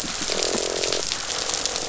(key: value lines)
label: biophony, croak
recorder: SoundTrap 500